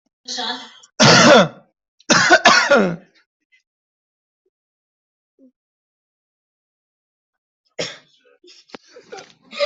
{"expert_labels": [{"quality": "ok", "cough_type": "unknown", "dyspnea": false, "wheezing": false, "stridor": false, "choking": false, "congestion": false, "nothing": true, "diagnosis": "healthy cough", "severity": "pseudocough/healthy cough"}], "age": 23, "gender": "male", "respiratory_condition": true, "fever_muscle_pain": true, "status": "healthy"}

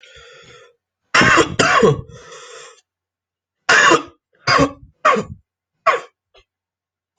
{"expert_labels": [{"quality": "ok", "cough_type": "dry", "dyspnea": false, "wheezing": false, "stridor": false, "choking": false, "congestion": false, "nothing": true, "diagnosis": "upper respiratory tract infection", "severity": "mild"}], "age": 20, "gender": "male", "respiratory_condition": true, "fever_muscle_pain": false, "status": "symptomatic"}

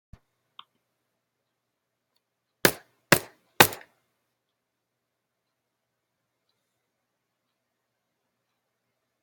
{"expert_labels": [{"quality": "no cough present", "dyspnea": false, "wheezing": false, "stridor": false, "choking": false, "congestion": false, "nothing": false}], "age": 22, "gender": "male", "respiratory_condition": false, "fever_muscle_pain": false, "status": "symptomatic"}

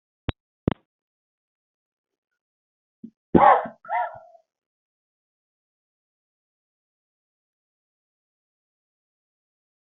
{"expert_labels": [{"quality": "ok", "cough_type": "dry", "dyspnea": false, "wheezing": false, "stridor": true, "choking": false, "congestion": false, "nothing": false, "diagnosis": "obstructive lung disease", "severity": "mild"}], "age": 18, "gender": "male", "respiratory_condition": false, "fever_muscle_pain": false, "status": "COVID-19"}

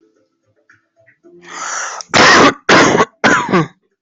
{"expert_labels": [{"quality": "ok", "cough_type": "dry", "dyspnea": false, "wheezing": true, "stridor": false, "choking": false, "congestion": false, "nothing": false, "diagnosis": "COVID-19", "severity": "mild"}], "age": 21, "gender": "male", "respiratory_condition": false, "fever_muscle_pain": false, "status": "healthy"}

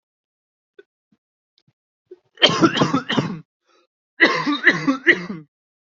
{"expert_labels": [{"quality": "good", "cough_type": "dry", "dyspnea": false, "wheezing": false, "stridor": false, "choking": false, "congestion": false, "nothing": true, "diagnosis": "lower respiratory tract infection", "severity": "mild"}], "age": 21, "gender": "male", "respiratory_condition": false, "fever_muscle_pain": false, "status": "symptomatic"}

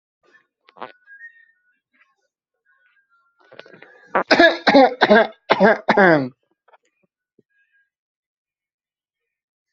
{"expert_labels": [{"quality": "ok", "cough_type": "unknown", "dyspnea": false, "wheezing": false, "stridor": false, "choking": false, "congestion": false, "nothing": true, "diagnosis": "healthy cough", "severity": "pseudocough/healthy cough"}], "age": 38, "gender": "male", "respiratory_condition": false, "fever_muscle_pain": false, "status": "COVID-19"}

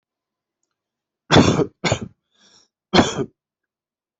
{"expert_labels": [{"quality": "good", "cough_type": "dry", "dyspnea": false, "wheezing": false, "stridor": false, "choking": false, "congestion": false, "nothing": true, "diagnosis": "upper respiratory tract infection", "severity": "mild"}], "age": 29, "gender": "male", "respiratory_condition": true, "fever_muscle_pain": false, "status": "healthy"}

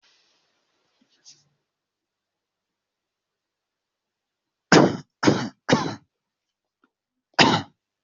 {"expert_labels": [{"quality": "poor", "cough_type": "unknown", "dyspnea": false, "wheezing": false, "stridor": false, "choking": false, "congestion": false, "nothing": true, "diagnosis": "healthy cough", "severity": "pseudocough/healthy cough"}], "gender": "female", "respiratory_condition": false, "fever_muscle_pain": false, "status": "symptomatic"}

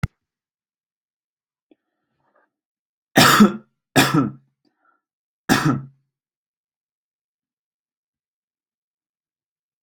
{"expert_labels": [{"quality": "good", "cough_type": "unknown", "dyspnea": false, "wheezing": false, "stridor": false, "choking": false, "congestion": false, "nothing": true, "diagnosis": "healthy cough", "severity": "pseudocough/healthy cough"}]}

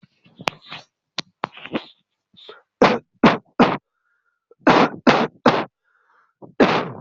{"expert_labels": [{"quality": "poor", "cough_type": "unknown", "dyspnea": false, "wheezing": false, "stridor": false, "choking": false, "congestion": false, "nothing": true, "diagnosis": "healthy cough", "severity": "pseudocough/healthy cough"}], "age": 20, "gender": "male", "respiratory_condition": false, "fever_muscle_pain": false, "status": "COVID-19"}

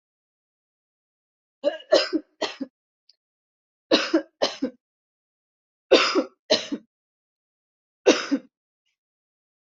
{"expert_labels": [{"quality": "good", "cough_type": "dry", "dyspnea": false, "wheezing": false, "stridor": false, "choking": false, "congestion": false, "nothing": true, "diagnosis": "upper respiratory tract infection", "severity": "mild"}], "age": 43, "gender": "female", "respiratory_condition": false, "fever_muscle_pain": false, "status": "healthy"}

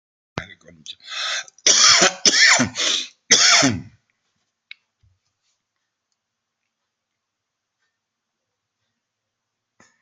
{"expert_labels": [{"quality": "good", "cough_type": "dry", "dyspnea": false, "wheezing": false, "stridor": false, "choking": false, "congestion": true, "nothing": false, "diagnosis": "upper respiratory tract infection", "severity": "mild"}], "age": 65, "gender": "male", "respiratory_condition": true, "fever_muscle_pain": false, "status": "COVID-19"}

